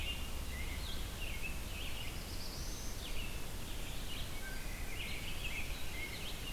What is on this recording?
American Robin, Red-eyed Vireo, Black-throated Blue Warbler, Wood Thrush